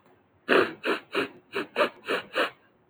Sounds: Sniff